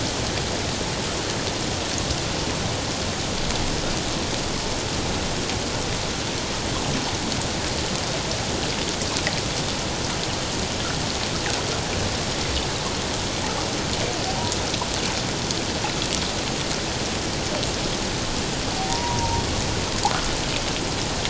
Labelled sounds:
18.9	19.4	humpback whale, 0.88 to 1.1 kHz

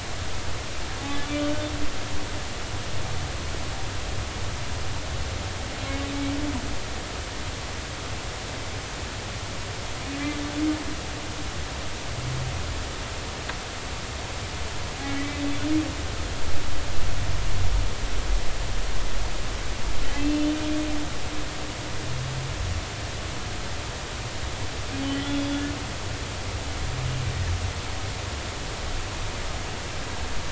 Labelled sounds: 1.2	1.6	humpback whale, 1.4 to 3.6 kHz
15.2	15.4	humpback whale, 1.9 to 2.1 kHz
20.1	20.6	humpback whale, 2.6 to 3.1 kHz
25.0	25.6	humpback whale, 3.0 to 3.5 kHz

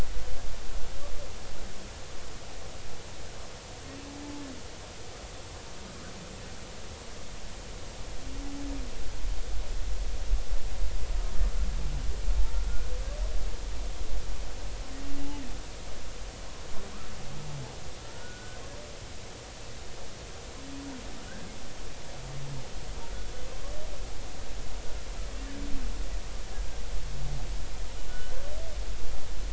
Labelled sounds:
12.4	12.6	humpback whale, 0.83 to 0.96 kHz
18.0	18.6	humpback whale, 1.3 to 1.5 kHz
28.1	28.4	humpback whale, 1.4 to 3.1 kHz

